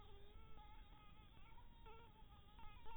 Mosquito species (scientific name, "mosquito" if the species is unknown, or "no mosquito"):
Anopheles maculatus